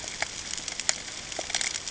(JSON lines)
{"label": "ambient", "recorder": "HydroMoth"}